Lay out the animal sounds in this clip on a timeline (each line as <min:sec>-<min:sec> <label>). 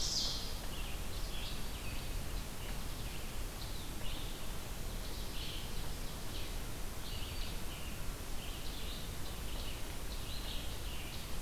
0:00.0-0:00.4 Ovenbird (Seiurus aurocapilla)
0:00.4-0:11.4 Red-eyed Vireo (Vireo olivaceus)
0:01.0-0:02.3 Black-throated Green Warbler (Setophaga virens)
0:06.8-0:07.9 Black-throated Green Warbler (Setophaga virens)